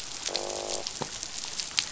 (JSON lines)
{"label": "biophony, croak", "recorder": "SoundTrap 500"}